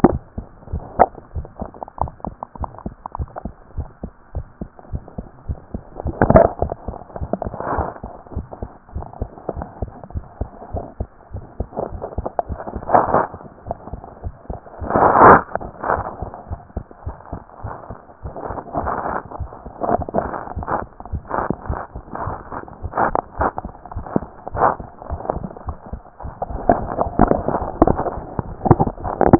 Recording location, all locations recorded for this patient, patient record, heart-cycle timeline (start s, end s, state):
tricuspid valve (TV)
aortic valve (AV)+pulmonary valve (PV)+tricuspid valve (TV)+mitral valve (MV)
#Age: Child
#Sex: Male
#Height: 113.0 cm
#Weight: 20.6 kg
#Pregnancy status: False
#Murmur: Present
#Murmur locations: aortic valve (AV)+mitral valve (MV)+pulmonary valve (PV)+tricuspid valve (TV)
#Most audible location: tricuspid valve (TV)
#Systolic murmur timing: Holosystolic
#Systolic murmur shape: Plateau
#Systolic murmur grading: II/VI
#Systolic murmur pitch: Low
#Systolic murmur quality: Harsh
#Diastolic murmur timing: nan
#Diastolic murmur shape: nan
#Diastolic murmur grading: nan
#Diastolic murmur pitch: nan
#Diastolic murmur quality: nan
#Outcome: Normal
#Campaign: 2014 screening campaign
0.00	1.34	unannotated
1.34	1.46	S1
1.46	1.60	systole
1.60	1.70	S2
1.70	2.00	diastole
2.00	2.12	S1
2.12	2.26	systole
2.26	2.36	S2
2.36	2.60	diastole
2.60	2.70	S1
2.70	2.84	systole
2.84	2.94	S2
2.94	3.18	diastole
3.18	3.28	S1
3.28	3.44	systole
3.44	3.54	S2
3.54	3.76	diastole
3.76	3.88	S1
3.88	4.02	systole
4.02	4.12	S2
4.12	4.34	diastole
4.34	4.46	S1
4.46	4.60	systole
4.60	4.70	S2
4.70	4.92	diastole
4.92	5.02	S1
5.02	5.18	systole
5.18	5.26	S2
5.26	5.48	diastole
5.48	5.58	S1
5.58	5.72	systole
5.72	5.82	S2
5.82	6.06	diastole
6.06	29.39	unannotated